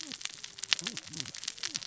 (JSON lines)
{"label": "biophony, cascading saw", "recorder": "SoundTrap 600 or HydroMoth"}